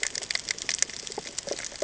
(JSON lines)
{"label": "ambient", "recorder": "HydroMoth"}